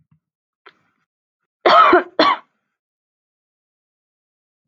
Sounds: Cough